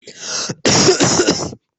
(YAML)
expert_labels:
- quality: poor
  cough_type: unknown
  dyspnea: false
  wheezing: false
  stridor: false
  choking: false
  congestion: false
  nothing: true
  diagnosis: lower respiratory tract infection
  severity: mild
gender: female
respiratory_condition: false
fever_muscle_pain: false
status: COVID-19